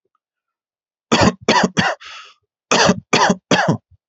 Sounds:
Cough